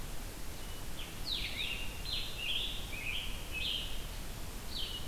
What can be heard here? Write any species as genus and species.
Vireo solitarius, Piranga olivacea